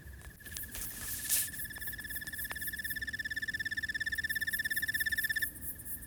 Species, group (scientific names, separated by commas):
Oecanthus californicus, Orthoptera